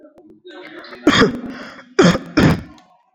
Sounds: Cough